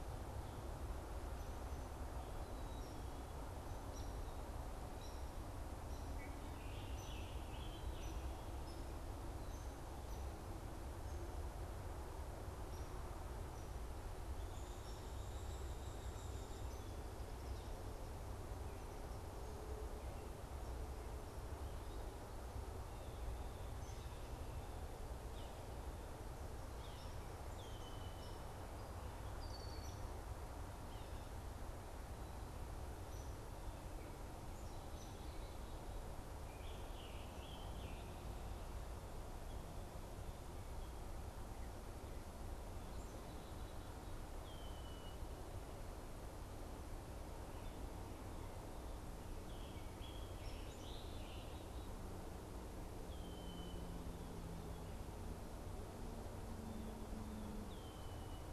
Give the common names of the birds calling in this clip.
Hairy Woodpecker, Red-winged Blackbird, Scarlet Tanager, unidentified bird